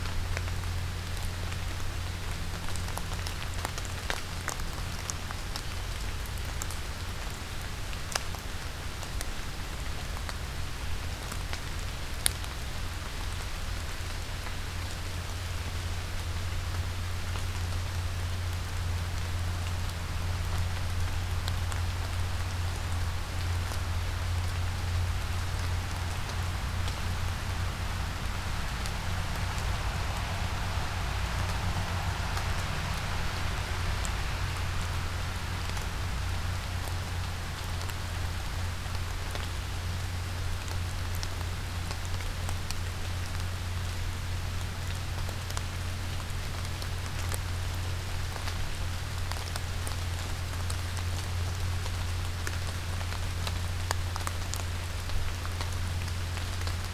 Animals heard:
forest ambience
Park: Acadia National Park